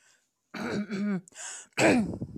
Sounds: Throat clearing